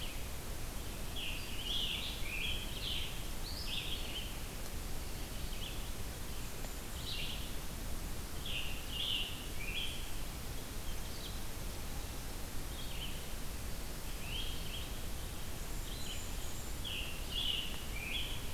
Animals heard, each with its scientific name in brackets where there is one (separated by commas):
Red-eyed Vireo (Vireo olivaceus), Scarlet Tanager (Piranga olivacea), Black-and-white Warbler (Mniotilta varia)